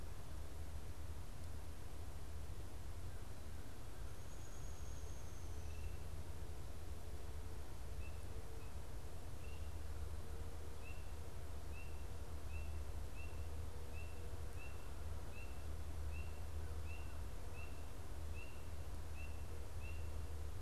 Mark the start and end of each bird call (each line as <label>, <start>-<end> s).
American Crow (Corvus brachyrhynchos), 2.8-5.2 s
Downy Woodpecker (Dryobates pubescens), 4.1-5.8 s